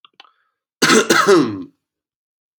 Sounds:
Cough